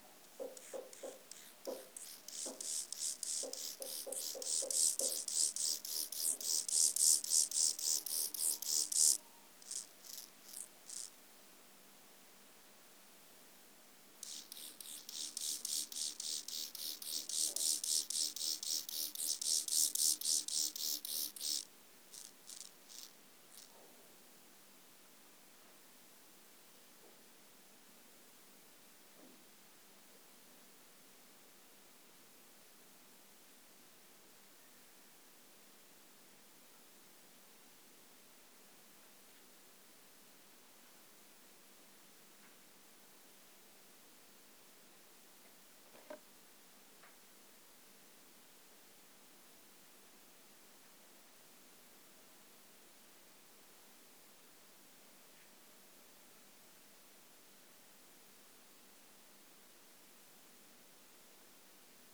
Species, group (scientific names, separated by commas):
Chorthippus mollis, Orthoptera